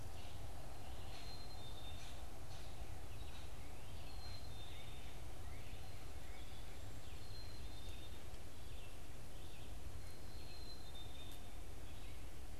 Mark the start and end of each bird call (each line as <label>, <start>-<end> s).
Red-eyed Vireo (Vireo olivaceus), 0.0-12.6 s
Black-capped Chickadee (Poecile atricapillus), 0.9-12.6 s